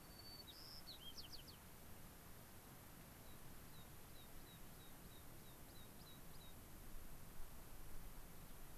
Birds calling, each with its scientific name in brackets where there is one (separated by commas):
White-crowned Sparrow (Zonotrichia leucophrys), American Pipit (Anthus rubescens)